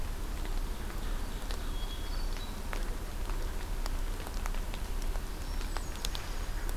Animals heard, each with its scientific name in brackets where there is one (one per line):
Hermit Thrush (Catharus guttatus)
Ovenbird (Seiurus aurocapilla)